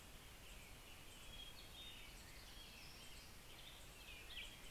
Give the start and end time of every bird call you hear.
0.0s-4.7s: American Robin (Turdus migratorius)
3.9s-4.7s: Black-headed Grosbeak (Pheucticus melanocephalus)

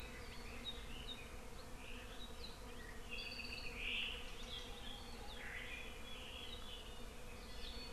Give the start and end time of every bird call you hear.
3.1s-3.8s: Apapane (Himatione sanguinea)
7.5s-7.9s: Hawaii Amakihi (Chlorodrepanis virens)

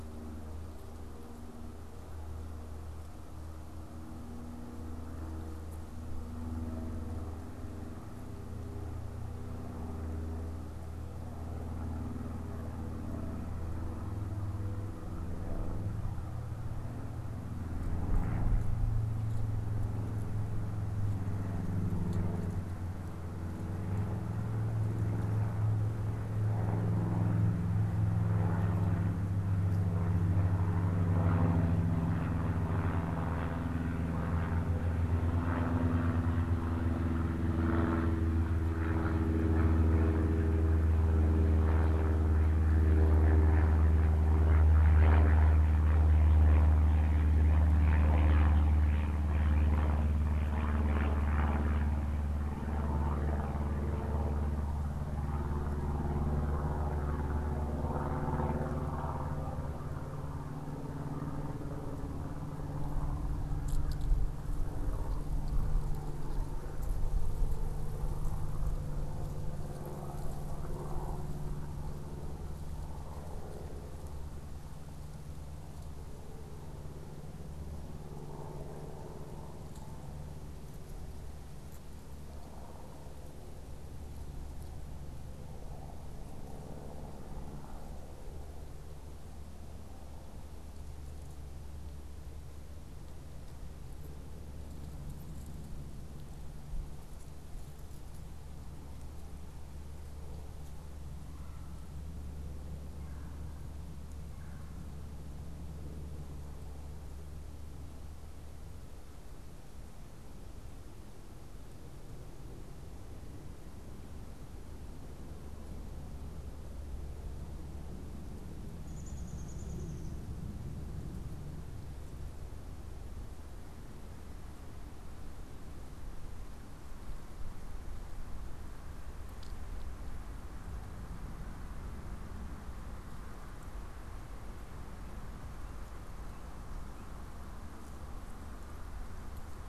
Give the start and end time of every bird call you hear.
101.2s-104.8s: Red-bellied Woodpecker (Melanerpes carolinus)
118.6s-120.3s: Downy Woodpecker (Dryobates pubescens)

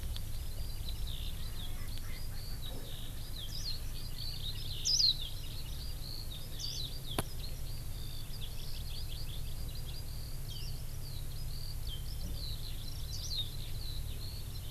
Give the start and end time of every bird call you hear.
0.3s-14.7s: Eurasian Skylark (Alauda arvensis)
1.7s-3.7s: Erckel's Francolin (Pternistis erckelii)
3.5s-3.8s: Warbling White-eye (Zosterops japonicus)
4.8s-5.1s: Warbling White-eye (Zosterops japonicus)
6.6s-6.9s: Warbling White-eye (Zosterops japonicus)
10.5s-10.8s: Warbling White-eye (Zosterops japonicus)
13.1s-13.5s: Warbling White-eye (Zosterops japonicus)

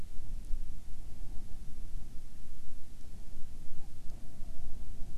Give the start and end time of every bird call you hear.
3.7s-4.8s: Hawaiian Petrel (Pterodroma sandwichensis)

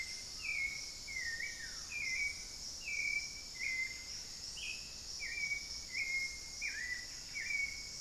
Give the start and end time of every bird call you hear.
0.0s-1.1s: Screaming Piha (Lipaugus vociferans)
0.0s-8.0s: Buff-breasted Wren (Cantorchilus leucotis)
0.0s-8.0s: Hauxwell's Thrush (Turdus hauxwelli)
0.0s-8.0s: unidentified bird
0.9s-2.1s: Buff-throated Woodcreeper (Xiphorhynchus guttatus)

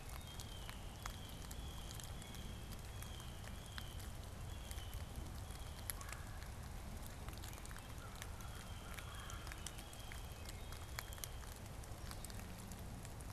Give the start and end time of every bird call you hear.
0.0s-10.6s: Blue Jay (Cyanocitta cristata)
5.7s-9.8s: Red-bellied Woodpecker (Melanerpes carolinus)
7.6s-10.1s: American Crow (Corvus brachyrhynchos)

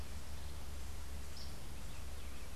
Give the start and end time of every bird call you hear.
0.0s-2.6s: Yellow Warbler (Setophaga petechia)

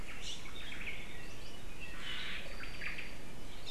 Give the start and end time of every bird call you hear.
0.1s-0.5s: Iiwi (Drepanis coccinea)
0.5s-1.1s: Omao (Myadestes obscurus)
1.9s-3.1s: Omao (Myadestes obscurus)

